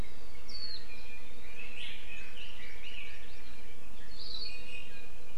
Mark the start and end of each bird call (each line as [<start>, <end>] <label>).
[0.50, 0.80] Warbling White-eye (Zosterops japonicus)
[0.90, 3.90] Red-billed Leiothrix (Leiothrix lutea)
[2.10, 3.40] Hawaii Amakihi (Chlorodrepanis virens)
[4.40, 5.20] Iiwi (Drepanis coccinea)